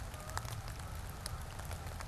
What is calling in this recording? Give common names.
Canada Goose